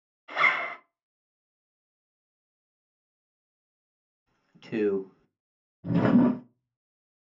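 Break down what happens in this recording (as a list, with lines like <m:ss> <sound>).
0:00 the sound of a zipper
0:05 someone says "Two."
0:06 a wooden drawer opens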